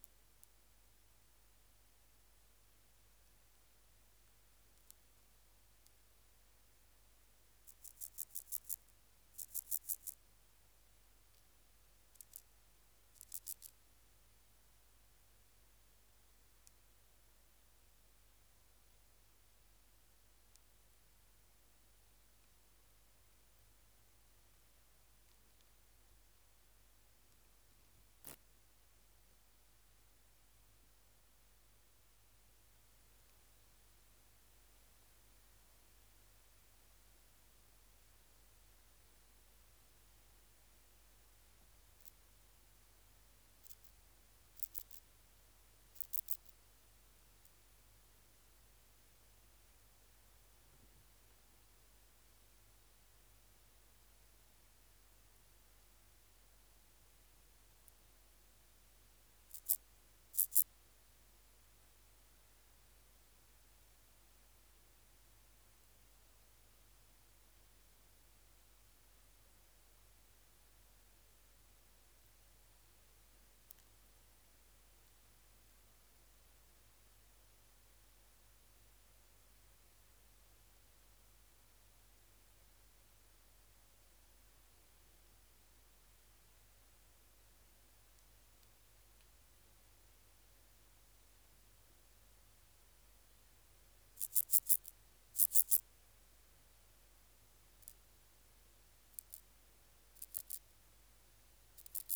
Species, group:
Chorthippus vagans, Orthoptera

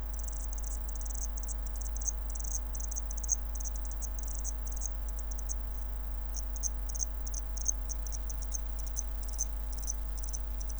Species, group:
Zvenella geniculata, Orthoptera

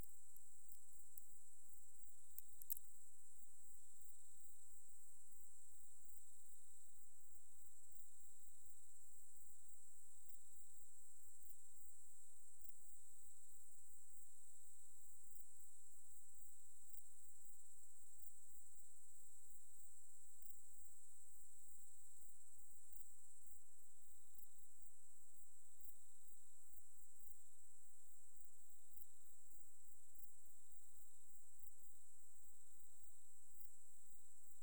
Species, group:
Nemobius sylvestris, Orthoptera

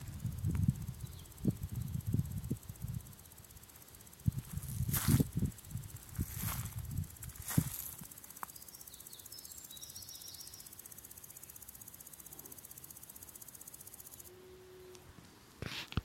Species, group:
Omocestus viridulus, Orthoptera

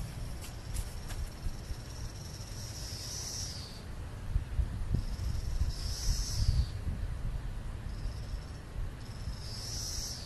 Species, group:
Magicicada cassini, Cicadidae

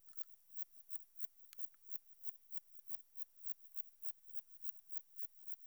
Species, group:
Metrioptera saussuriana, Orthoptera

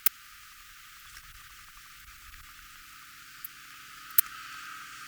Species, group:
Poecilimon ornatus, Orthoptera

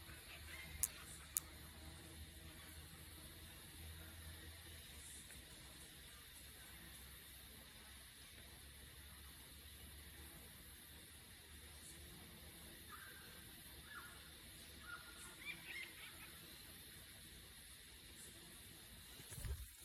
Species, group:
Yoyetta humphreyae, Cicadidae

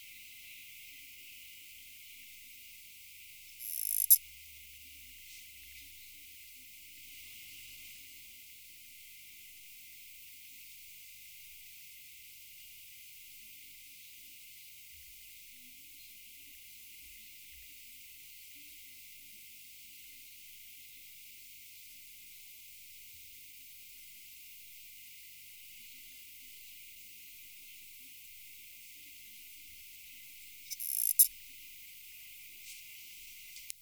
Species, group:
Poecilimon nobilis, Orthoptera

